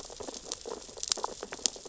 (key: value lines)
label: biophony, sea urchins (Echinidae)
recorder: SoundTrap 600 or HydroMoth